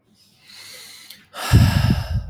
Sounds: Sigh